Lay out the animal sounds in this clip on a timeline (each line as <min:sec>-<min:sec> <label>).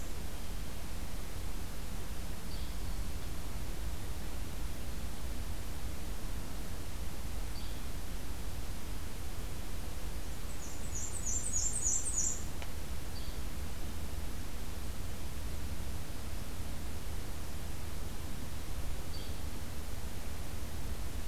0:02.5-0:02.7 Yellow-bellied Flycatcher (Empidonax flaviventris)
0:07.5-0:07.8 Yellow-bellied Flycatcher (Empidonax flaviventris)
0:10.3-0:12.4 Black-and-white Warbler (Mniotilta varia)
0:13.1-0:13.3 Yellow-bellied Flycatcher (Empidonax flaviventris)
0:19.1-0:19.4 Yellow-bellied Flycatcher (Empidonax flaviventris)